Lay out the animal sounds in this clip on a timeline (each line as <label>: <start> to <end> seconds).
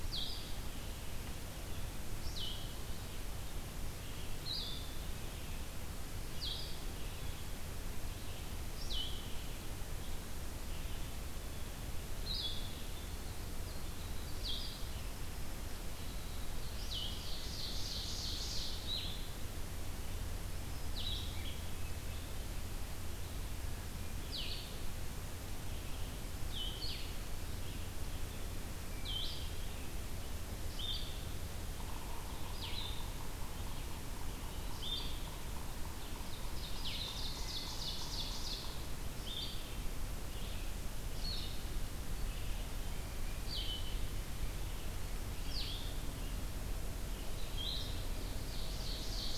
Blue-headed Vireo (Vireo solitarius): 0.0 to 2.7 seconds
Blue-headed Vireo (Vireo solitarius): 4.2 to 49.4 seconds
Winter Wren (Troglodytes hiemalis): 12.9 to 17.0 seconds
Ovenbird (Seiurus aurocapilla): 16.8 to 18.9 seconds
Black-throated Green Warbler (Setophaga virens): 20.4 to 21.4 seconds
Yellow-bellied Sapsucker (Sphyrapicus varius): 31.7 to 37.6 seconds
Ovenbird (Seiurus aurocapilla): 36.0 to 38.8 seconds
Ovenbird (Seiurus aurocapilla): 48.5 to 49.4 seconds